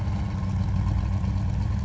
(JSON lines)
{"label": "anthrophony, boat engine", "recorder": "SoundTrap 500"}